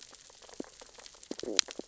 {"label": "biophony, stridulation", "recorder": "SoundTrap 600 or HydroMoth"}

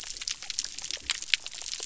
{"label": "biophony", "recorder": "SoundTrap 300"}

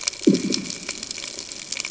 {"label": "anthrophony, bomb", "recorder": "HydroMoth"}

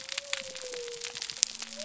{"label": "biophony", "recorder": "SoundTrap 300"}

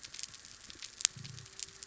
{"label": "biophony", "recorder": "SoundTrap 300"}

